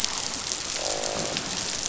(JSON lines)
{"label": "biophony, croak", "recorder": "SoundTrap 500"}